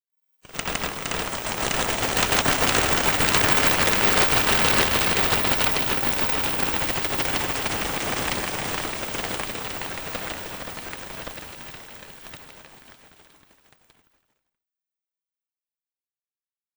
Can people be heard talking?
no